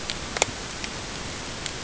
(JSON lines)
{"label": "ambient", "recorder": "HydroMoth"}